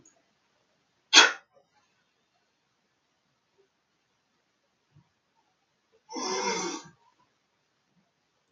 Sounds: Sniff